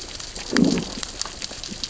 {"label": "biophony, growl", "recorder": "SoundTrap 600 or HydroMoth"}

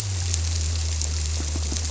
{"label": "biophony", "recorder": "SoundTrap 300"}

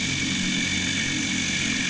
{"label": "anthrophony, boat engine", "recorder": "HydroMoth"}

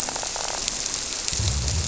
{"label": "biophony", "recorder": "SoundTrap 300"}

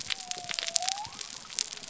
{"label": "biophony", "recorder": "SoundTrap 300"}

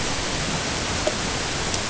{"label": "ambient", "recorder": "HydroMoth"}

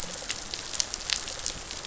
{"label": "biophony, rattle response", "recorder": "SoundTrap 500"}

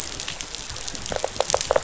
{"label": "biophony", "recorder": "SoundTrap 500"}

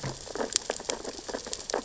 {"label": "biophony, sea urchins (Echinidae)", "recorder": "SoundTrap 600 or HydroMoth"}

